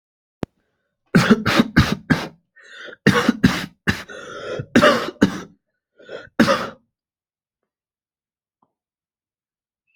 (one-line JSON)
{"expert_labels": [{"quality": "good", "cough_type": "dry", "dyspnea": true, "wheezing": false, "stridor": false, "choking": true, "congestion": false, "nothing": false, "diagnosis": "obstructive lung disease", "severity": "mild"}], "age": 18, "gender": "male", "respiratory_condition": false, "fever_muscle_pain": false, "status": "symptomatic"}